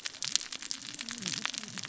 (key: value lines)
label: biophony, cascading saw
recorder: SoundTrap 600 or HydroMoth